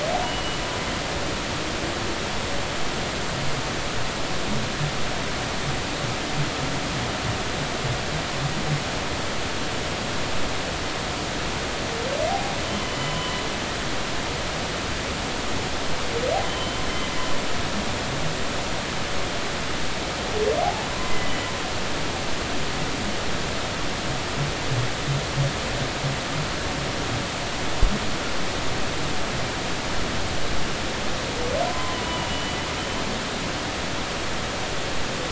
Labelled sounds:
0.2	0.6	humpback whale, 2.9 to 3.0 kHz
12.3	13.4	humpback whale, 0.80 to 3.1 kHz
16.5	16.8	humpback whale, 3.0 to 3.1 kHz
20.6	21.3	humpback whale, 0.80 to 2.1 kHz
31.7	32.0	humpback whale, 0.96 to 1.1 kHz
33.0	33.6	humpback whale, 2.8 to 3.0 kHz

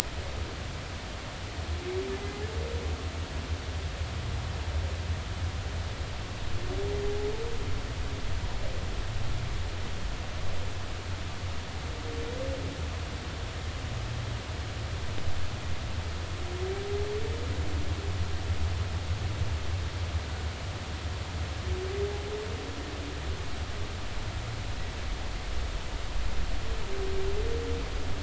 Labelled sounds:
2.2	2.4	humpback whale, 2.0 to 2.1 kHz

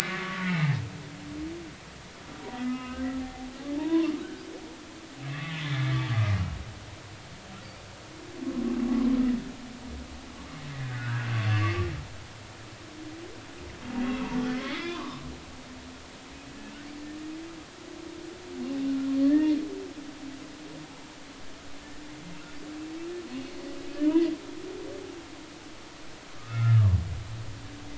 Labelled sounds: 0.1	0.7	humpback whale, 1.1 to 2.8 kHz
1.0	1.3	humpback whale, 2.0 to 2.2 kHz
2.5	4.1	humpback whale, 0.80 to 2.9 kHz
5.3	6.0	humpback whale, 1.1 to 2.3 kHz
10.8	11.9	humpback whale, 1.1 to 3.0 kHz
14.6	15.2	humpback whale, 0.93 to 2.3 kHz
19.2	19.5	humpback whale, 1.7 to 1.9 kHz
24.0	24.3	humpback whale, 2.9 to 3.1 kHz
26.4	26.8	humpback whale, 1.2 to 1.5 kHz

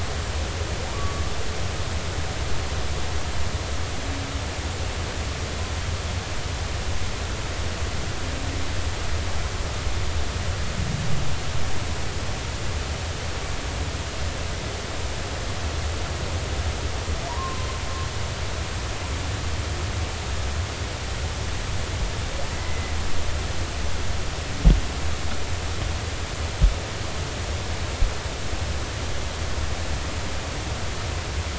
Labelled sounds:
0.9	1.2	humpback whale, 1.1 to 1.2 kHz
17.3	17.7	humpback whale, 0.90 to 1.1 kHz
22.6	22.9	humpback whale, 2.0 to 2.1 kHz

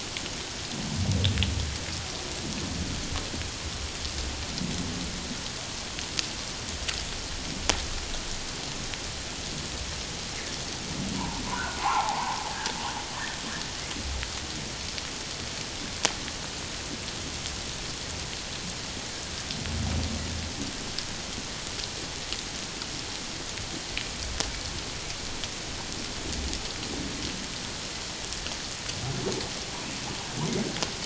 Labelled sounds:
11.2	12.4	humpback whale, 0.78 to 1.6 kHz
13.1	13.4	humpback whale, 1.5 to 1.9 kHz

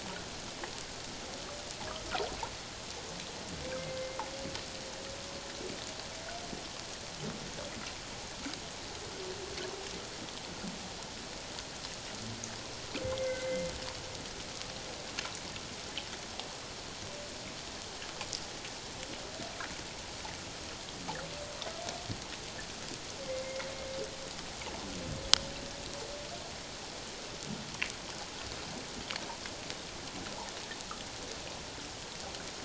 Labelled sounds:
3.8	4.2	humpback whale, 2.0 to 2.2 kHz
13.0	13.7	humpback whale, 2.0 to 2.2 kHz
23.2	23.7	humpback whale, 1.9 to 2.2 kHz

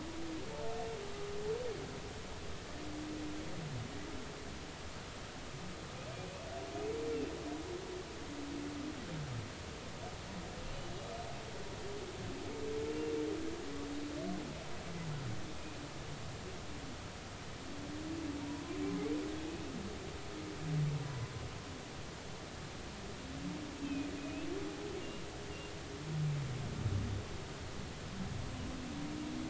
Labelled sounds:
21.1	21.3	humpback whale, 0.96 to 1.1 kHz
23.8	24.5	humpback whale, 2.4 to 2.7 kHz

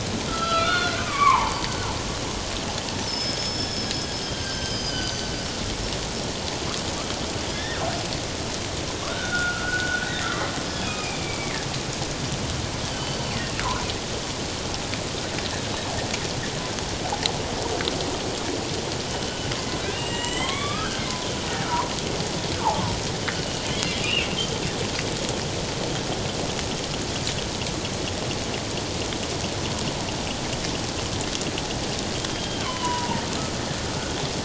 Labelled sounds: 0.3	1.6	killer whale, northern resident, G clan, 0.81 to 4.4 kHz
3.1	3.9	killer whale, northern resident, G clan, 3.3 to 6.8 kHz
4.3	5.3	killer whale, northern resident, G clan, 1.5 to 6.2 kHz
7.5	7.8	killer whale, northern resident, G clan, 1.6 to 5.6 kHz
9.0	10.0	killer whale, northern resident, G clan, 1.1 to 3.8 kHz
10.8	11.6	killer whale, northern resident, G clan, 2.0 to 5.1 kHz
12.9	13.3	killer whale, northern resident, G clan, 3.0 to 4.6 kHz
19.9	21.1	killer whale, northern resident, G clan, 0.97 to 8.0 kHz
23.3	24.3	killer whale, northern resident, G clan, 2.2 to 3.0 kHz
32.3	33.2	killer whale, northern resident, G clan, 0.84 to 3.3 kHz

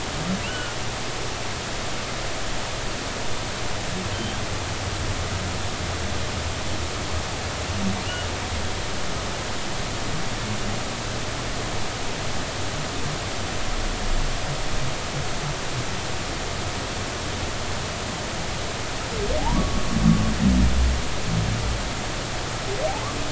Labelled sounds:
0.4	0.8	humpback whale, 1.4 to 3.1 kHz
4.1	4.4	humpback whale, 3.0 to 3.2 kHz
19.4	19.9	humpback whale, 0.80 to 1.2 kHz

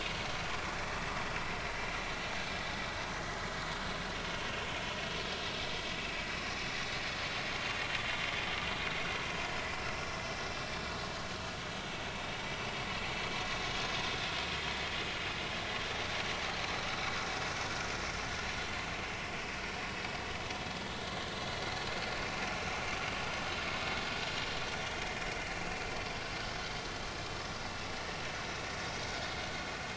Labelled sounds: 0.8	1.1	vessel noise, 2.3 to 2.4 kHz
6.4	6.6	vessel noise, 5.3 to 5.5 kHz
19.6	19.9	vessel noise, 5.4 to 5.6 kHz
25.5	25.8	vessel noise, 2.6 to 2.8 kHz
28.3	28.6	vessel noise, 5.9 to 6.1 kHz

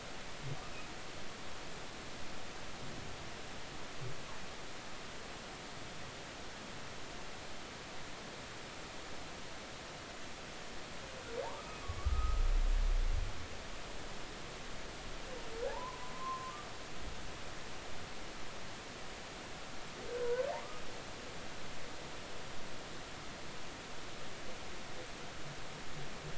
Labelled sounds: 11.4	12.4	humpback whale, 0.80 to 1.3 kHz
15.7	16.5	humpback whale, 0.80 to 1.1 kHz
20.2	20.4	humpback whale, 0.93 to 1.1 kHz

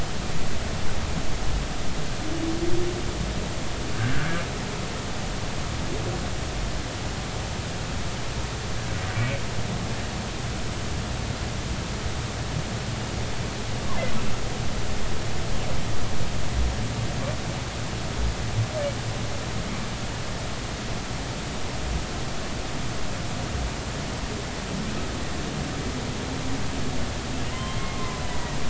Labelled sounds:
4.1	4.4	humpback whale, 1.4 to 1.8 kHz
10.1	10.4	humpback whale, 2.2 to 2.5 kHz
27.5	28.3	humpback whale, 0.96 to 3.2 kHz

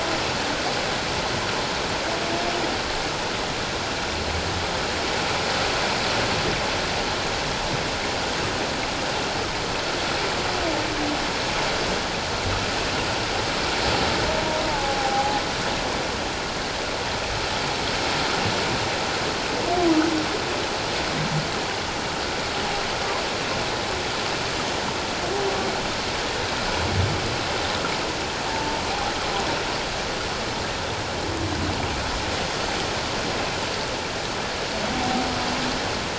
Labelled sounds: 14.7	15.4	humpback whale, 0.78 to 0.94 kHz

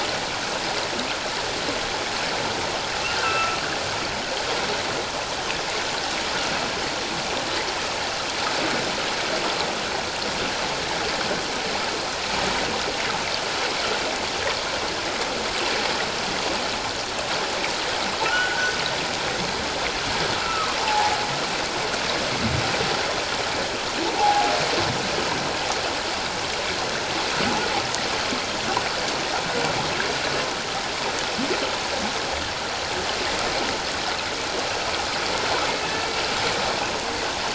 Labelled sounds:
3.2	3.6	humpback whale, 1.3 to 2.7 kHz
18.2	18.8	humpback whale, 1.3 to 1.6 kHz
20.4	21.2	humpback whale, 0.78 to 2.8 kHz
24.2	24.5	humpback whale, 0.78 to 0.94 kHz

